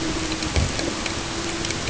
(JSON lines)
{"label": "ambient", "recorder": "HydroMoth"}